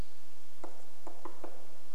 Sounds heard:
woodpecker drumming

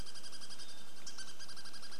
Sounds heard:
Hermit Thrush song
Douglas squirrel rattle
unidentified bird chip note

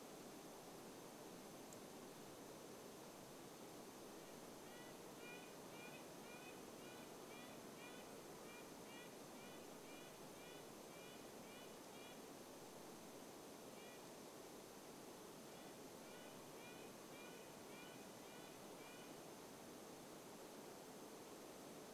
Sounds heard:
Red-breasted Nuthatch song

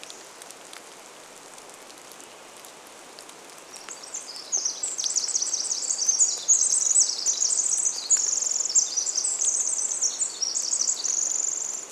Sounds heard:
Hammond's Flycatcher song
Pacific Wren song
rain

